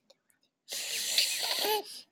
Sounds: Sniff